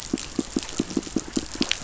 {"label": "biophony, pulse", "recorder": "SoundTrap 500"}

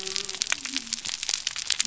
{"label": "biophony", "recorder": "SoundTrap 300"}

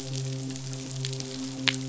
{"label": "biophony, midshipman", "recorder": "SoundTrap 500"}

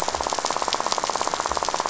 {"label": "biophony, rattle", "recorder": "SoundTrap 500"}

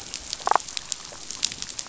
{"label": "biophony, damselfish", "recorder": "SoundTrap 500"}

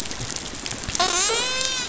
{"label": "biophony, dolphin", "recorder": "SoundTrap 500"}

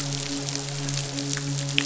{"label": "biophony, midshipman", "recorder": "SoundTrap 500"}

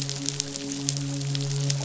{"label": "biophony, midshipman", "recorder": "SoundTrap 500"}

